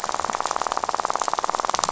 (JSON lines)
{"label": "biophony, rattle", "recorder": "SoundTrap 500"}